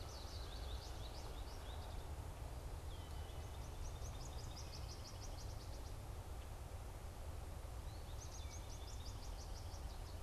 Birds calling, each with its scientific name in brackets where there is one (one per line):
Northern Flicker (Colaptes auratus)
American Goldfinch (Spinus tristis)